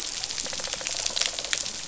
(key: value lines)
label: biophony, rattle response
recorder: SoundTrap 500